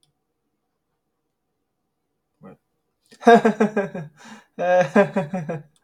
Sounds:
Laughter